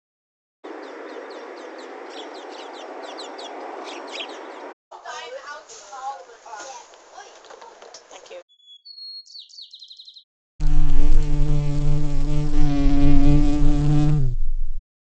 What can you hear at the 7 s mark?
bus